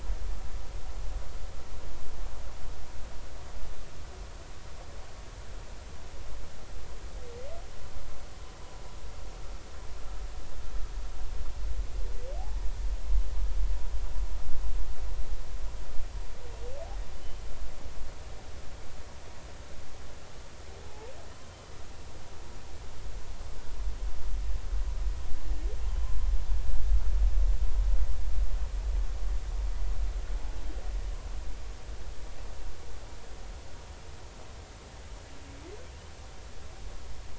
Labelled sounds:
20.8	21.7	humpback whale, 0.80 to 3.2 kHz

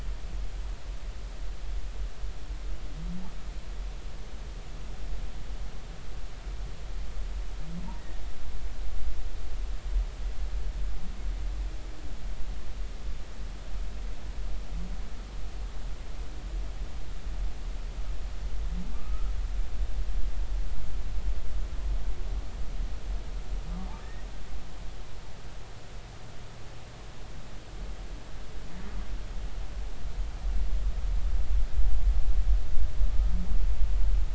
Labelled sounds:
18.9	19.3	humpback whale, 1.1 to 1.4 kHz

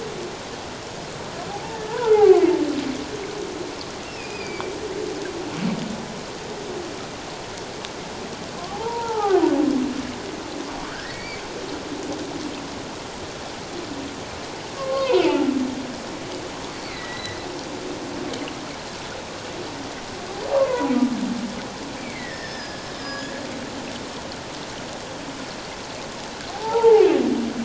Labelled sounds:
1.5	2.4	humpback whale, 0.78 to 1.7 kHz
4.0	4.8	humpback whale, 2.2 to 5.1 kHz
8.7	9.5	humpback whale, 0.78 to 1.4 kHz
10.9	11.4	humpback whale, 1.3 to 4.7 kHz
14.8	15.4	humpback whale, 0.88 to 4.4 kHz
16.8	17.4	humpback whale, 1.9 to 4.2 kHz
20.5	20.9	humpback whale, 0.91 to 1.2 kHz
22.0	23.3	humpback whale, 1.6 to 5.5 kHz
26.5	27.1	humpback whale, 0.78 to 1.0 kHz

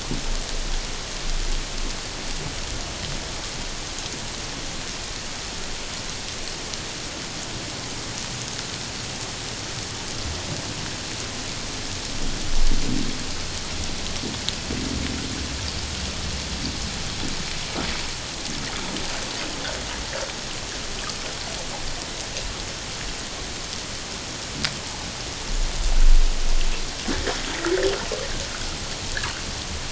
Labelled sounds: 27.5	27.8	water noise, 1.7 to 2.0 kHz

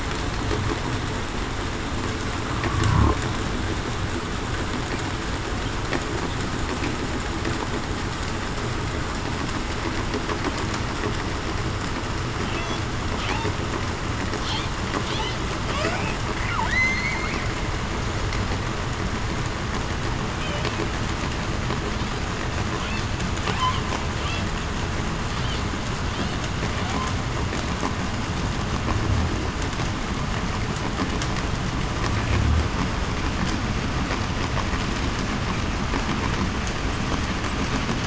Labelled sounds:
16.7	17.4	killer whale, southern resident, 1.6 to 4.4 kHz

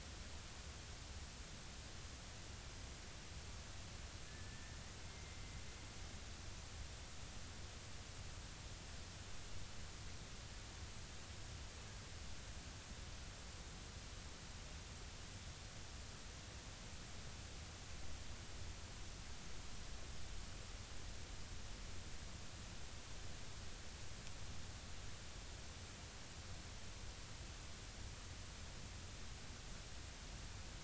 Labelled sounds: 4.3	5.6	killer whale, 1.7 to 2.2 kHz

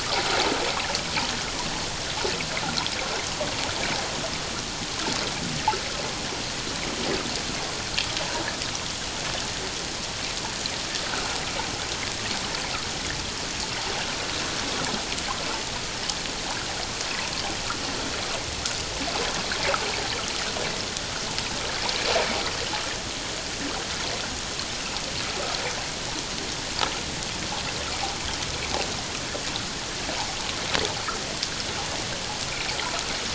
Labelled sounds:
11.1	11.4	water noise, 1.2 to 1.6 kHz

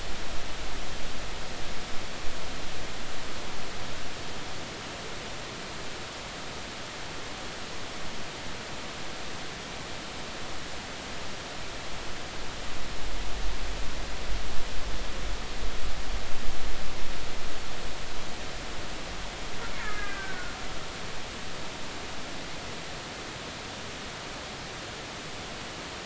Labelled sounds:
19.8	20.5	killer whale, Bigg's (transient), 1.2 to 2.2 kHz

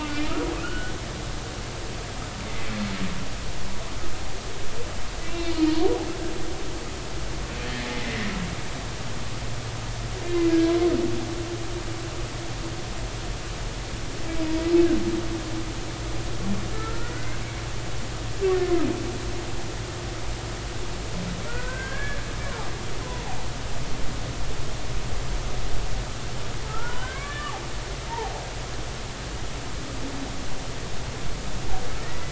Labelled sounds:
0.6	0.9	humpback whale, 1.3 to 3.0 kHz
5.3	5.8	humpback whale, 2.6 to 4.7 kHz
7.9	8.3	humpback whale, 1.8 to 2.1 kHz
10.2	10.5	humpback whale, 2.0 to 2.1 kHz
16.7	17.4	humpback whale, 1.2 to 2.2 kHz
21.5	22.2	humpback whale, 1.3 to 2.6 kHz
26.7	27.5	humpback whale, 0.90 to 3.2 kHz
28.1	28.4	humpback whale, 0.80 to 1.0 kHz

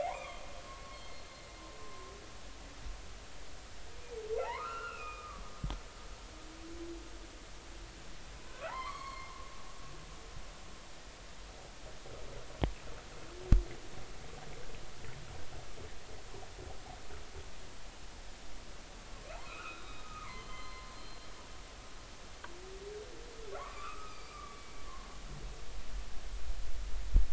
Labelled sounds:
0.0	1.3	humpback whale, 0.80 to 4.4 kHz
1.8	2.1	humpback whale, 0.99 to 1.1 kHz
4.4	5.5	humpback whale, 0.80 to 2.9 kHz
8.5	9.3	humpback whale, 0.80 to 7.7 kHz
19.4	21.2	humpback whale, 0.93 to 4.3 kHz
23.6	24.6	humpback whale, 0.90 to 4.9 kHz

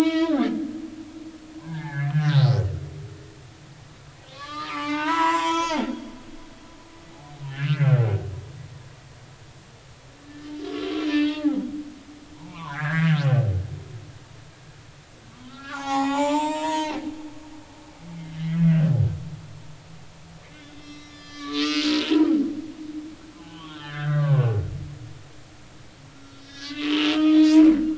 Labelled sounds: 0.0	0.3	humpback whale, 1.9 to 5.0 kHz
1.0	2.6	humpback whale, 0.80 to 4.0 kHz
4.3	5.9	humpback whale, 0.80 to 7.6 kHz
7.5	7.9	humpback whale, 1.3 to 1.9 kHz
10.2	11.7	humpback whale, 0.80 to 3.7 kHz
12.4	13.2	humpback whale, 0.80 to 1.8 kHz
15.5	16.9	humpback whale, 0.80 to 7.8 kHz
18.4	18.7	humpback whale, 1.9 to 2.2 kHz
20.6	21.9	humpback whale, 0.96 to 6.8 kHz
23.4	24.5	humpback whale, 0.93 to 3.8 kHz
26.2	27.7	humpback whale, 1.1 to 5.1 kHz

